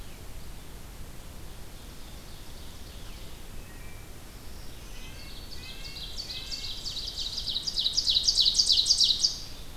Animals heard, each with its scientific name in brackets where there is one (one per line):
Red-breasted Nuthatch (Sitta canadensis)
Ovenbird (Seiurus aurocapilla)
Black-throated Green Warbler (Setophaga virens)